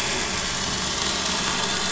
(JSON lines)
{"label": "anthrophony, boat engine", "recorder": "SoundTrap 500"}